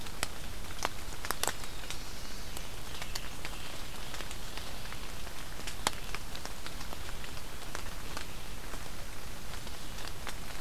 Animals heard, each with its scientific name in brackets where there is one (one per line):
Black-throated Blue Warbler (Setophaga caerulescens)